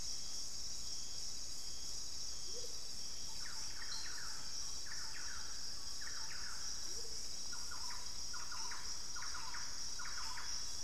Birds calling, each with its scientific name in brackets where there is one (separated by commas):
Thrush-like Wren (Campylorhynchus turdinus), Amazonian Motmot (Momotus momota)